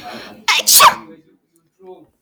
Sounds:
Sneeze